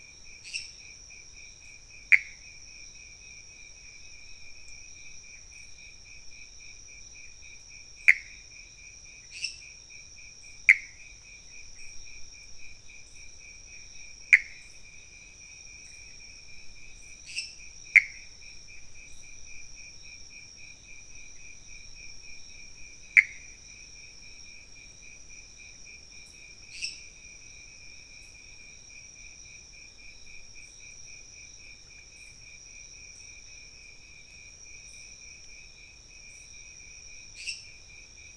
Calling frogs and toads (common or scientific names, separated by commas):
lesser tree frog, Pithecopus azureus